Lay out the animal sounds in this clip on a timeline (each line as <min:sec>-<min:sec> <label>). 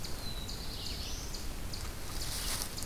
0:00.0-0:01.7 Black-throated Blue Warbler (Setophaga caerulescens)
0:00.0-0:02.9 Eastern Chipmunk (Tamias striatus)